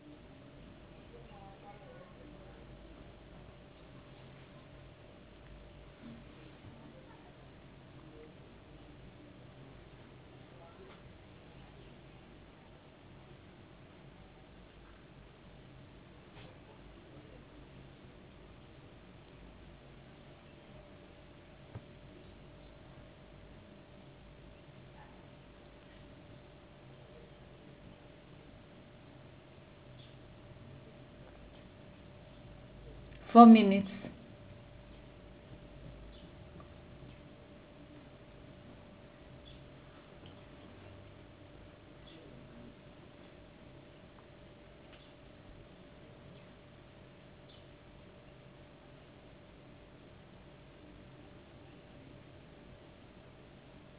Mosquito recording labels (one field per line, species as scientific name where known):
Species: no mosquito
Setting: insect culture